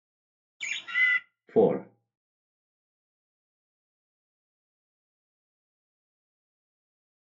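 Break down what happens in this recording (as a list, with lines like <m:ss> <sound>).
0:01 a bird can be heard
0:02 someone says "Four"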